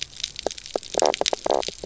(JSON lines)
{"label": "biophony, knock croak", "recorder": "SoundTrap 300"}